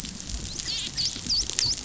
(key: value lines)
label: biophony, dolphin
recorder: SoundTrap 500